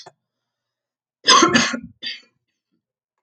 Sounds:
Cough